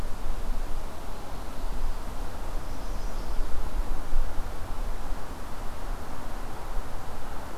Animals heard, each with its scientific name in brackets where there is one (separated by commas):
Chestnut-sided Warbler (Setophaga pensylvanica)